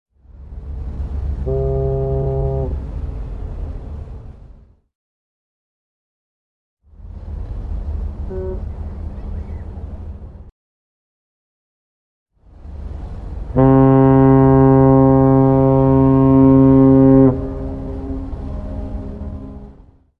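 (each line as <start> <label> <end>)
0.2 A ship. 4.9
1.4 A ship horn sounds. 2.8
6.8 A ship. 10.6
8.3 A ship horn sounds. 8.6
12.3 A ship. 20.2
13.5 A ship horn sounds. 17.4
17.5 A ship horn echoes. 19.5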